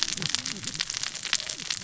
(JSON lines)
{"label": "biophony, cascading saw", "recorder": "SoundTrap 600 or HydroMoth"}